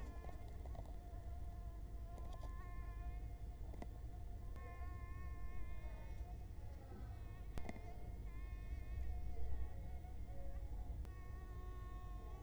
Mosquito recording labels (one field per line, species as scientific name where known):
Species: Culex quinquefasciatus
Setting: cup